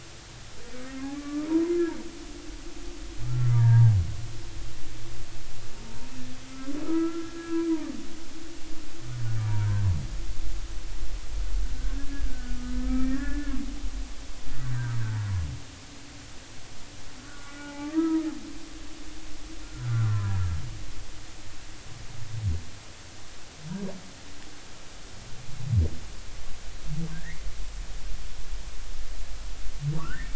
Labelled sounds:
0.8	1.5	humpback whale, 1.1 to 1.4 kHz
3.2	3.9	humpback whale, 0.80 to 1.9 kHz
6.8	7.6	humpback whale, 0.93 to 1.8 kHz
9.4	9.8	humpback whale, 0.90 to 1.7 kHz
12.0	13.6	humpback whale, 1.2 to 2.4 kHz
17.2	18.3	humpback whale, 0.80 to 2.5 kHz
19.8	20.4	humpback whale, 0.93 to 1.6 kHz
27.1	27.4	humpback whale, 1.5 to 2.3 kHz
29.9	30.3	humpback whale, 0.86 to 2.4 kHz

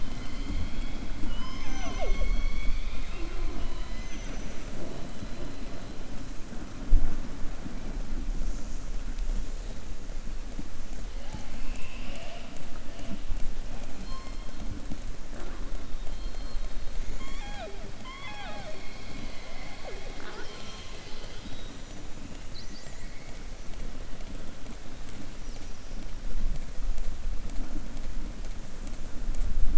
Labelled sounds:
1.2	3.3	killer whale, southern resident, 0.32 to 6.3 kHz
11.1	12.5	killer whale, southern resident, 0.55 to 6.8 kHz

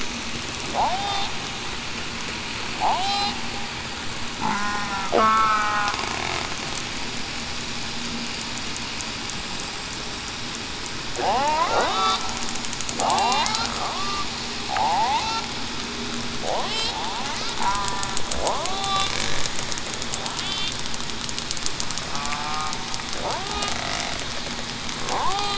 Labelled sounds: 0.8	1.3	killer whale, southern resident, 0.56 to 0.87 kHz
2.9	3.3	killer whale, southern resident, 0.58 to 0.87 kHz
4.5	4.9	killer whale, southern resident, 0.98 to 1.1 kHz
5.1	5.9	killer whale, southern resident, 0.80 to 8.0 kHz
11.1	11.6	killer whale, southern resident, 0.56 to 1.3 kHz
13.0	13.4	killer whale, southern resident, 0.68 to 0.98 kHz
17.6	18.0	killer whale, southern resident, 0.94 to 1.0 kHz
18.5	19.1	killer whale, southern resident, 0.49 to 0.80 kHz
22.1	22.6	killer whale, southern resident, 0.82 to 0.91 kHz
25.1	25.5	killer whale, southern resident, 0.70 to 1.2 kHz

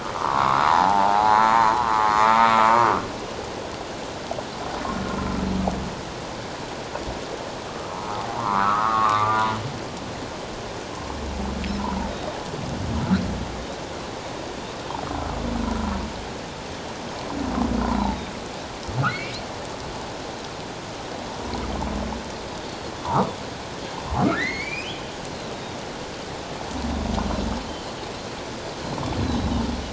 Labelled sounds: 0.0	1.6	humpback whale, 0.78 to 4.3 kHz
1.9	2.2	humpback whale, 1.0 to 1.1 kHz
8.4	9.4	Pacific white-sided dolphin, 0.84 to 1.5 kHz
12.1	12.4	humpback whale, 3.7 to 3.8 kHz
15.7	16.0	humpback whale, 1.3 to 1.4 kHz
17.8	18.2	humpback whale, 0.78 to 1.1 kHz
19.1	19.4	humpback whale, 1.9 to 2.4 kHz
22.6	22.9	Pacific white-sided dolphin, 4.2 to 4.5 kHz
23.0	23.3	humpback whale, 0.81 to 1.4 kHz
24.3	24.9	humpback whale, 1.6 to 4.7 kHz
27.7	27.9	Pacific white-sided dolphin, 2.9 to 3.2 kHz
29.2	29.6	Pacific white-sided dolphin, 3.6 to 4.2 kHz

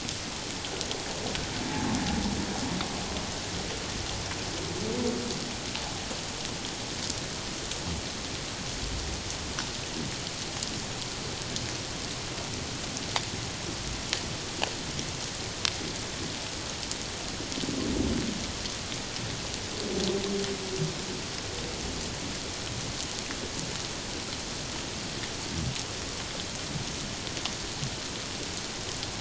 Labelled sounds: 1.7	2.0	humpback whale, 0.81 to 0.94 kHz

